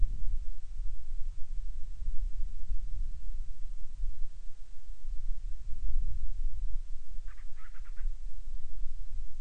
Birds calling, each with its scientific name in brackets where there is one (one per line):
Band-rumped Storm-Petrel (Hydrobates castro)